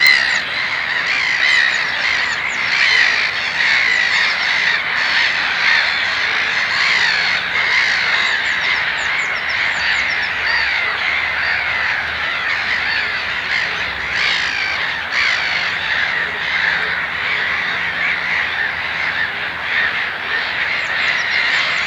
Is this in the city?
no